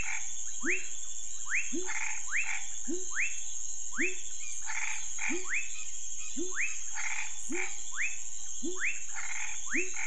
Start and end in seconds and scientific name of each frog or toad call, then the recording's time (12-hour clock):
0.0	10.0	Leptodactylus fuscus
0.0	10.0	Leptodactylus labyrinthicus
1.7	2.2	Boana raniceps
4.6	5.3	Boana raniceps
6.9	7.7	Boana raniceps
9.1	10.0	Boana raniceps
10:00pm